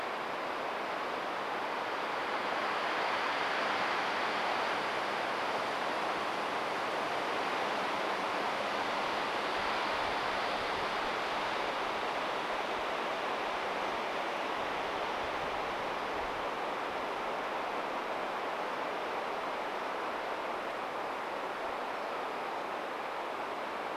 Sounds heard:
forest ambience